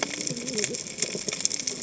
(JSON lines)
{"label": "biophony, cascading saw", "recorder": "HydroMoth"}